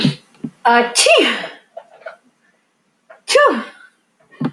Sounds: Sneeze